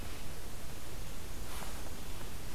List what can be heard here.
Black-and-white Warbler